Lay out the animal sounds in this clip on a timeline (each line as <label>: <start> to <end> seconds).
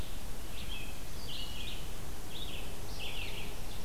Red-eyed Vireo (Vireo olivaceus): 0.0 to 3.9 seconds